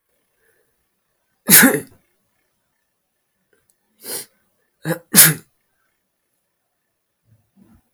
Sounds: Sneeze